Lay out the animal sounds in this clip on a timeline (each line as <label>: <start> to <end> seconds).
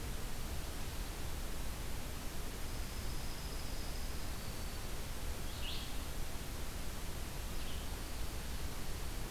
Dark-eyed Junco (Junco hyemalis): 2.7 to 4.3 seconds
Red-eyed Vireo (Vireo olivaceus): 5.4 to 7.9 seconds